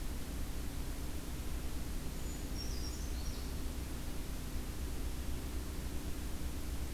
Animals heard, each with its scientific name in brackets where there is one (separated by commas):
Brown Creeper (Certhia americana)